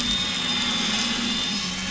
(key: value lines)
label: anthrophony, boat engine
recorder: SoundTrap 500